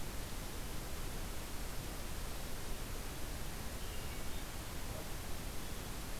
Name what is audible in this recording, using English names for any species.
Hermit Thrush